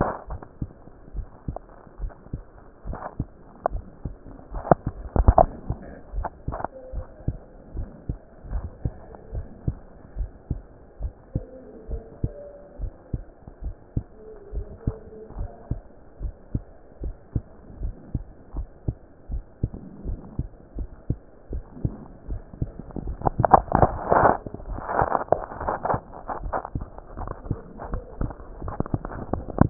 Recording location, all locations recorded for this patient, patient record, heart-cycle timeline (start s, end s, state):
mitral valve (MV)
aortic valve (AV)+pulmonary valve (PV)+tricuspid valve (TV)+mitral valve (MV)
#Age: Child
#Sex: Male
#Height: 147.0 cm
#Weight: 31.4 kg
#Pregnancy status: False
#Murmur: Absent
#Murmur locations: nan
#Most audible location: nan
#Systolic murmur timing: nan
#Systolic murmur shape: nan
#Systolic murmur grading: nan
#Systolic murmur pitch: nan
#Systolic murmur quality: nan
#Diastolic murmur timing: nan
#Diastolic murmur shape: nan
#Diastolic murmur grading: nan
#Diastolic murmur pitch: nan
#Diastolic murmur quality: nan
#Outcome: Normal
#Campaign: 2015 screening campaign
0.00	6.92	unannotated
6.92	7.06	S1
7.06	7.24	systole
7.24	7.38	S2
7.38	7.74	diastole
7.74	7.88	S1
7.88	8.08	systole
8.08	8.18	S2
8.18	8.50	diastole
8.50	8.66	S1
8.66	8.84	systole
8.84	8.94	S2
8.94	9.32	diastole
9.32	9.46	S1
9.46	9.66	systole
9.66	9.80	S2
9.80	10.16	diastole
10.16	10.30	S1
10.30	10.46	systole
10.46	10.62	S2
10.62	11.00	diastole
11.00	11.14	S1
11.14	11.34	systole
11.34	11.46	S2
11.46	11.88	diastole
11.88	12.02	S1
12.02	12.20	systole
12.20	12.34	S2
12.34	12.78	diastole
12.78	12.92	S1
12.92	13.12	systole
13.12	13.24	S2
13.24	13.62	diastole
13.62	13.76	S1
13.76	13.92	systole
13.92	14.06	S2
14.06	14.52	diastole
14.52	14.66	S1
14.66	14.86	systole
14.86	14.96	S2
14.96	15.36	diastole
15.36	15.50	S1
15.50	15.70	systole
15.70	15.82	S2
15.82	16.20	diastole
16.20	16.34	S1
16.34	16.54	systole
16.54	16.64	S2
16.64	17.02	diastole
17.02	17.16	S1
17.16	17.32	systole
17.32	17.46	S2
17.46	17.80	diastole
17.80	17.94	S1
17.94	18.10	systole
18.10	18.22	S2
18.22	18.54	diastole
18.54	18.68	S1
18.68	18.84	systole
18.84	18.98	S2
18.98	19.30	diastole
19.30	19.44	S1
19.44	19.62	systole
19.62	19.74	S2
19.74	20.06	diastole
20.06	20.20	S1
20.20	20.36	systole
20.36	20.46	S2
20.46	20.76	diastole
20.76	20.90	S1
20.90	21.06	systole
21.06	21.18	S2
21.18	21.52	diastole
21.52	21.64	S1
21.64	21.82	systole
21.82	21.94	S2
21.94	22.28	diastole
22.28	29.70	unannotated